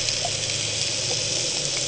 {"label": "anthrophony, boat engine", "recorder": "HydroMoth"}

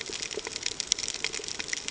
{"label": "ambient", "recorder": "HydroMoth"}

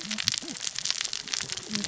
{"label": "biophony, cascading saw", "recorder": "SoundTrap 600 or HydroMoth"}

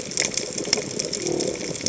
{"label": "biophony", "recorder": "HydroMoth"}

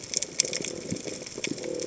{"label": "biophony", "recorder": "HydroMoth"}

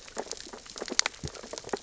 {"label": "biophony, sea urchins (Echinidae)", "recorder": "SoundTrap 600 or HydroMoth"}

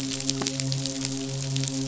{"label": "biophony, midshipman", "recorder": "SoundTrap 500"}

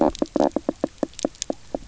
{"label": "biophony, knock croak", "recorder": "SoundTrap 300"}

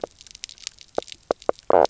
{"label": "biophony, knock croak", "recorder": "SoundTrap 300"}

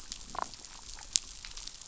{"label": "biophony, damselfish", "recorder": "SoundTrap 500"}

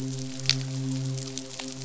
{"label": "biophony, midshipman", "recorder": "SoundTrap 500"}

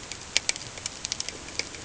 {"label": "ambient", "recorder": "HydroMoth"}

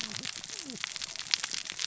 {"label": "biophony, cascading saw", "recorder": "SoundTrap 600 or HydroMoth"}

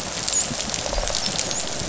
{"label": "biophony, dolphin", "recorder": "SoundTrap 500"}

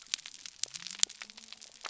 {"label": "biophony", "recorder": "SoundTrap 300"}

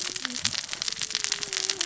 {"label": "biophony, cascading saw", "recorder": "SoundTrap 600 or HydroMoth"}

